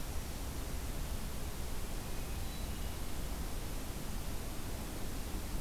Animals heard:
Hermit Thrush (Catharus guttatus)

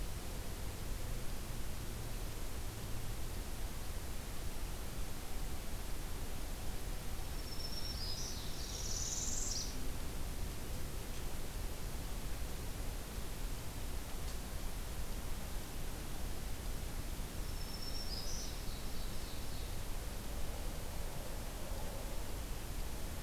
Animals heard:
Northern Parula (Setophaga americana), Black-throated Green Warbler (Setophaga virens), Ovenbird (Seiurus aurocapilla)

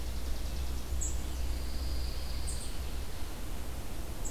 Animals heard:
Chipping Sparrow (Spizella passerina), unidentified call, Pine Warbler (Setophaga pinus), Red-eyed Vireo (Vireo olivaceus)

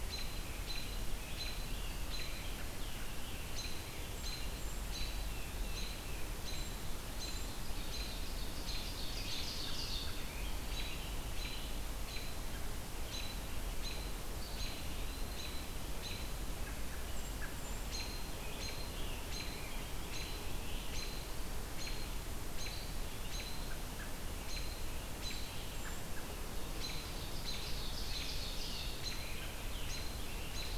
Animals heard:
Eastern Wood-Pewee (Contopus virens), Tufted Titmouse (Baeolophus bicolor), Scarlet Tanager (Piranga olivacea), Ovenbird (Seiurus aurocapilla), American Robin (Turdus migratorius)

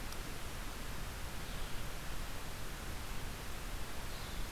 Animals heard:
Red-eyed Vireo (Vireo olivaceus)

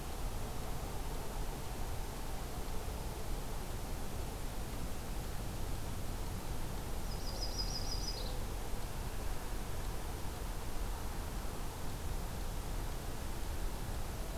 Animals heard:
Yellow-rumped Warbler (Setophaga coronata)

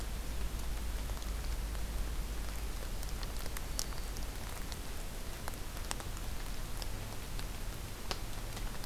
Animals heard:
Black-throated Green Warbler (Setophaga virens)

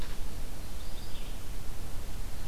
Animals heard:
Red-eyed Vireo (Vireo olivaceus), Magnolia Warbler (Setophaga magnolia)

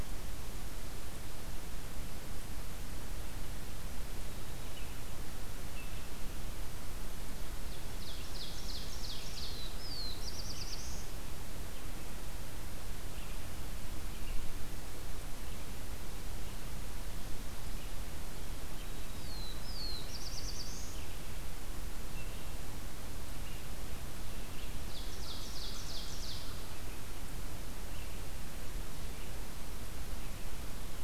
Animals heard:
Ovenbird (Seiurus aurocapilla), Black-throated Blue Warbler (Setophaga caerulescens), Red-eyed Vireo (Vireo olivaceus)

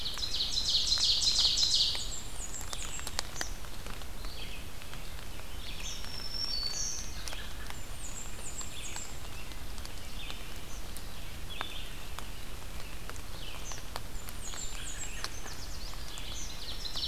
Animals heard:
Ovenbird (Seiurus aurocapilla), Black-throated Green Warbler (Setophaga virens), Eastern Kingbird (Tyrannus tyrannus), Blackburnian Warbler (Setophaga fusca), Red-eyed Vireo (Vireo olivaceus), Yellow Warbler (Setophaga petechia)

